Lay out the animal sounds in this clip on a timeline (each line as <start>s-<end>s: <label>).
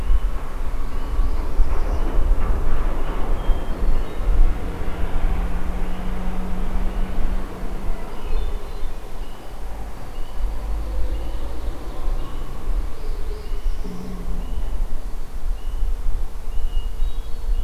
0.7s-2.1s: Northern Parula (Setophaga americana)
3.3s-4.5s: Hermit Thrush (Catharus guttatus)
7.9s-9.0s: Hermit Thrush (Catharus guttatus)
9.8s-11.2s: Red-winged Blackbird (Agelaius phoeniceus)
10.8s-12.4s: Ovenbird (Seiurus aurocapilla)
12.8s-14.2s: Northern Parula (Setophaga americana)
16.5s-17.6s: Hermit Thrush (Catharus guttatus)